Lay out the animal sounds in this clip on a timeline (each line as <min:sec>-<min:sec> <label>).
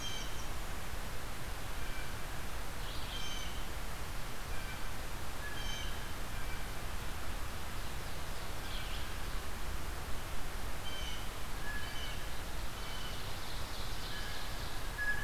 0:00.0-0:00.7 Blue Jay (Cyanocitta cristata)
0:00.0-0:00.7 Winter Wren (Troglodytes hiemalis)
0:00.0-0:09.4 Red-eyed Vireo (Vireo olivaceus)
0:03.0-0:03.8 Blue Jay (Cyanocitta cristata)
0:05.2-0:06.4 Blue Jay (Cyanocitta cristata)
0:10.6-0:13.5 Blue Jay (Cyanocitta cristata)
0:12.8-0:15.0 Ovenbird (Seiurus aurocapilla)
0:13.9-0:15.2 Blue Jay (Cyanocitta cristata)